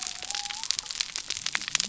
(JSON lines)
{"label": "biophony", "recorder": "SoundTrap 300"}